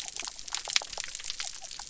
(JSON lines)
{"label": "biophony", "recorder": "SoundTrap 300"}